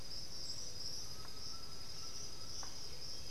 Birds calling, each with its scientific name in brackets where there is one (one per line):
White-winged Becard (Pachyramphus polychopterus)
Black-billed Thrush (Turdus ignobilis)
Undulated Tinamou (Crypturellus undulatus)